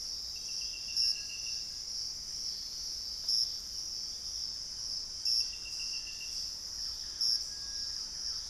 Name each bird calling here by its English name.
Black-faced Antthrush, Thrush-like Wren